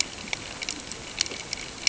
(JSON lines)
{"label": "ambient", "recorder": "HydroMoth"}